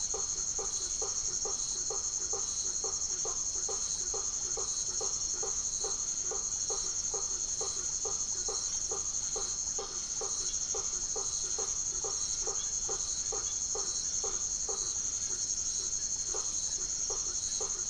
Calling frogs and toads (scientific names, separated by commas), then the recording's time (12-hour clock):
Boana faber, Leptodactylus notoaktites
8:00pm